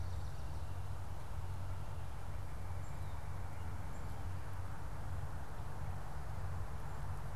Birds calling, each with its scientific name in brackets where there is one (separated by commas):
Black-capped Chickadee (Poecile atricapillus)